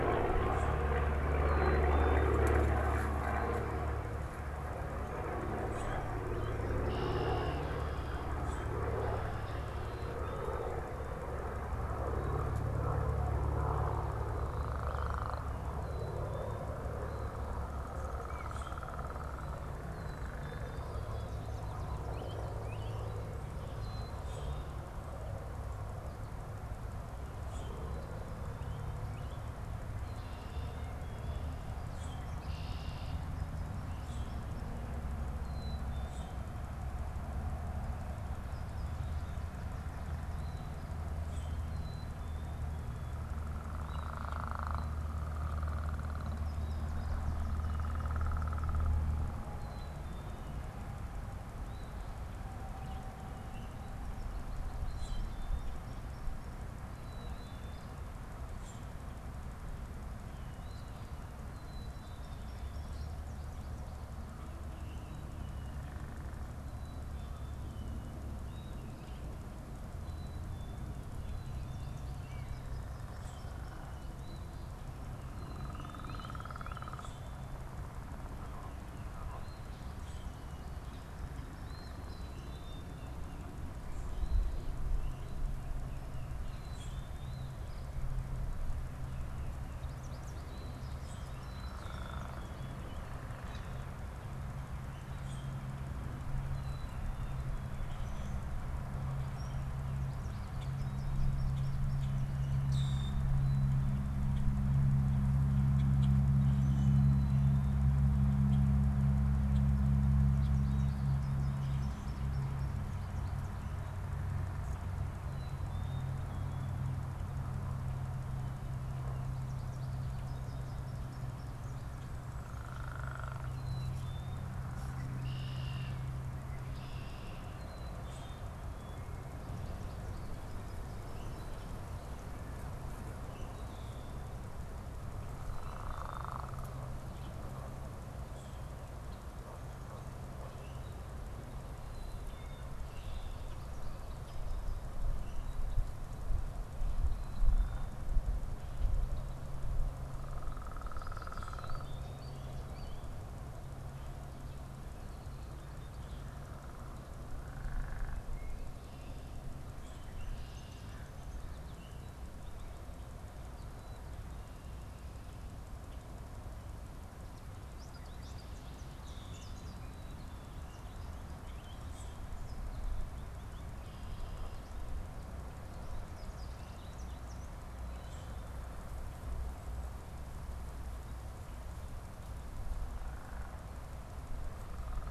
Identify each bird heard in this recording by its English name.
Black-capped Chickadee, Common Grackle, Red-winged Blackbird, unidentified bird, American Goldfinch, Eastern Phoebe